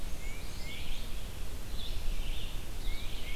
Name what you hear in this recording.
Blackburnian Warbler, Red-eyed Vireo, Tufted Titmouse